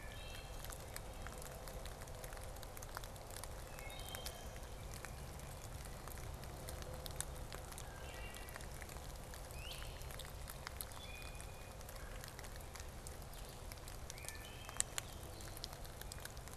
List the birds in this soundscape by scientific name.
Hylocichla mustelina, Vireo solitarius, Poecile atricapillus, Cyanocitta cristata, Myiarchus crinitus